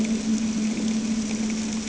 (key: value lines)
label: anthrophony, boat engine
recorder: HydroMoth